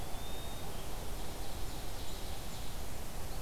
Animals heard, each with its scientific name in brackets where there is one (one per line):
Red-eyed Vireo (Vireo olivaceus)
Blackburnian Warbler (Setophaga fusca)
Ovenbird (Seiurus aurocapilla)
Eastern Wood-Pewee (Contopus virens)